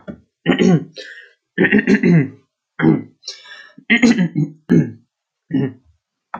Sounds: Throat clearing